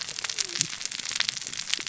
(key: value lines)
label: biophony, cascading saw
recorder: SoundTrap 600 or HydroMoth